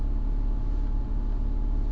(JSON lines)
{"label": "anthrophony, boat engine", "recorder": "SoundTrap 300"}